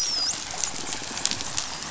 {"label": "biophony, dolphin", "recorder": "SoundTrap 500"}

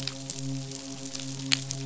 {"label": "biophony, midshipman", "recorder": "SoundTrap 500"}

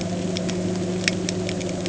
{"label": "anthrophony, boat engine", "recorder": "HydroMoth"}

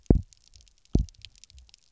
{"label": "biophony, double pulse", "recorder": "SoundTrap 300"}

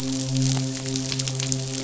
{"label": "biophony, midshipman", "recorder": "SoundTrap 500"}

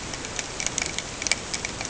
{"label": "ambient", "recorder": "HydroMoth"}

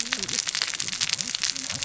{"label": "biophony, cascading saw", "recorder": "SoundTrap 600 or HydroMoth"}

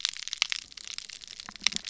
{"label": "biophony", "recorder": "SoundTrap 300"}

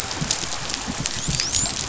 {"label": "biophony, dolphin", "recorder": "SoundTrap 500"}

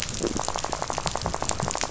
{"label": "biophony, rattle", "recorder": "SoundTrap 500"}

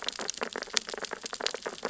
{"label": "biophony, sea urchins (Echinidae)", "recorder": "SoundTrap 600 or HydroMoth"}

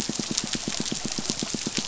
{"label": "biophony, pulse", "recorder": "SoundTrap 500"}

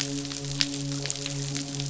{"label": "biophony, midshipman", "recorder": "SoundTrap 500"}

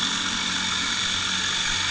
{"label": "anthrophony, boat engine", "recorder": "HydroMoth"}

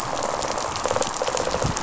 {"label": "biophony, rattle response", "recorder": "SoundTrap 500"}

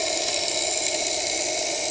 {"label": "anthrophony, boat engine", "recorder": "HydroMoth"}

